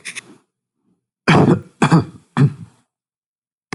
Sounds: Cough